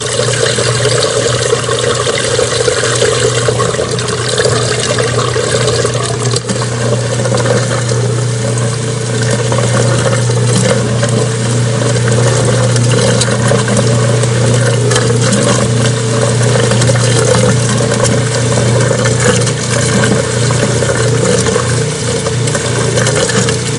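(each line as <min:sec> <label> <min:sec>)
0:00.0 A washing machine pumps out water continuously in a uniform and slightly muffled manner. 0:23.8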